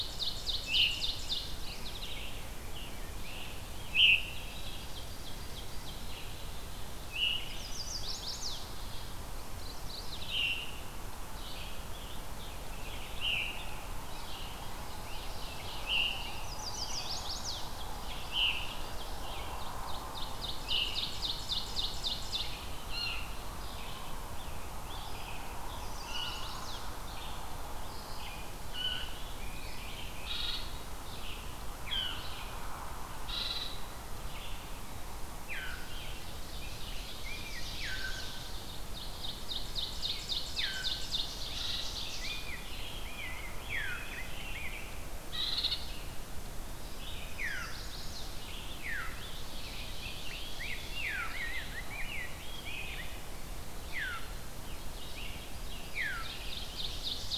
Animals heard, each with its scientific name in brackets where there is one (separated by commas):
Chestnut-sided Warbler (Setophaga pensylvanica), Red-eyed Vireo (Vireo olivaceus), Ovenbird (Seiurus aurocapilla), Mourning Warbler (Geothlypis philadelphia), Veery (Catharus fuscescens), Scarlet Tanager (Piranga olivacea), Rose-breasted Grosbeak (Pheucticus ludovicianus)